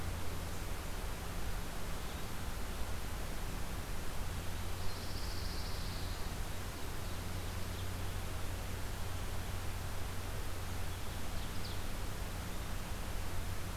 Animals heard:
Pine Warbler (Setophaga pinus), Ovenbird (Seiurus aurocapilla)

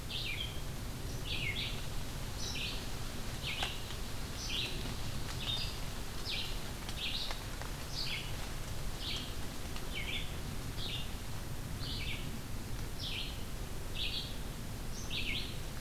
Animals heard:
Red-eyed Vireo (Vireo olivaceus)

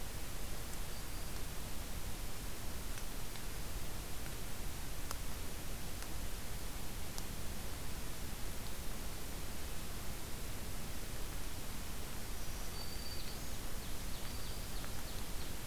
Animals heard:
Ovenbird (Seiurus aurocapilla), Black-throated Green Warbler (Setophaga virens)

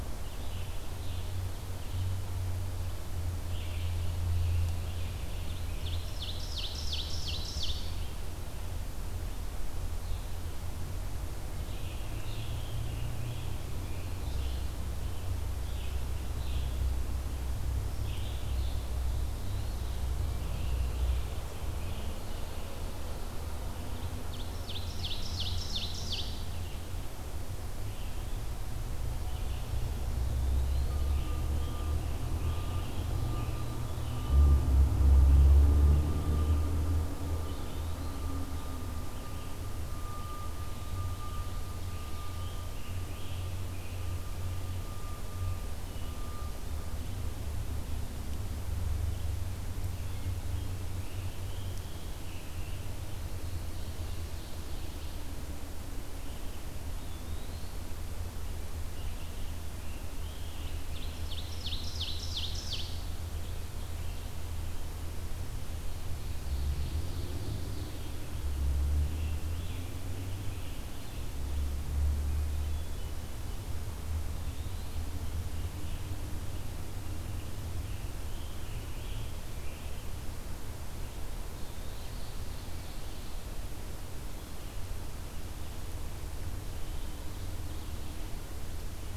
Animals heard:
Red-eyed Vireo (Vireo olivaceus), Eastern Wood-Pewee (Contopus virens), Ovenbird (Seiurus aurocapilla), Hermit Thrush (Catharus guttatus), Scarlet Tanager (Piranga olivacea)

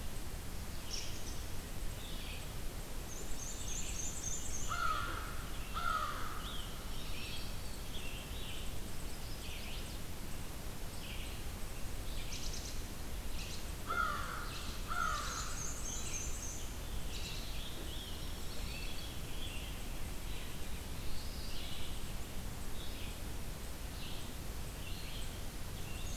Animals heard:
American Robin (Turdus migratorius), Chestnut-sided Warbler (Setophaga pensylvanica), Red-eyed Vireo (Vireo olivaceus), American Crow (Corvus brachyrhynchos), Veery (Catharus fuscescens), Mourning Warbler (Geothlypis philadelphia), Scarlet Tanager (Piranga olivacea), Black-and-white Warbler (Mniotilta varia), Black-throated Green Warbler (Setophaga virens)

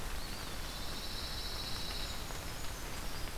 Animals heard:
Brown Creeper (Certhia americana), Pine Warbler (Setophaga pinus), Eastern Wood-Pewee (Contopus virens)

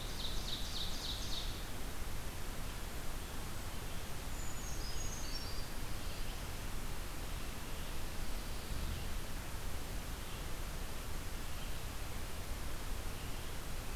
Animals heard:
Ovenbird (Seiurus aurocapilla), Red-eyed Vireo (Vireo olivaceus), Brown Creeper (Certhia americana)

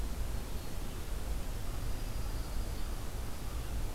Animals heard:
Dark-eyed Junco (Junco hyemalis)

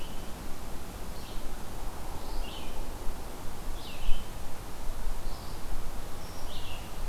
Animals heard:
Red-eyed Vireo (Vireo olivaceus)

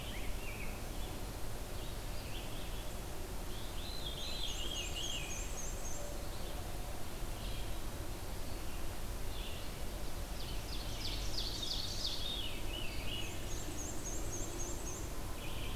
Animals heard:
Red-eyed Vireo (Vireo olivaceus), Ovenbird (Seiurus aurocapilla), Veery (Catharus fuscescens), Black-and-white Warbler (Mniotilta varia)

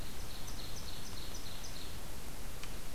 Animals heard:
Ovenbird (Seiurus aurocapilla)

